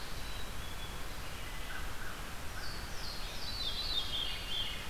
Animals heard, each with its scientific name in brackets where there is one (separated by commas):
American Crow (Corvus brachyrhynchos), Veery (Catharus fuscescens), Black-capped Chickadee (Poecile atricapillus), Louisiana Waterthrush (Parkesia motacilla)